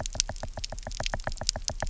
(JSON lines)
{"label": "biophony, knock", "recorder": "SoundTrap 300"}